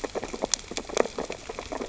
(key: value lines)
label: biophony, sea urchins (Echinidae)
recorder: SoundTrap 600 or HydroMoth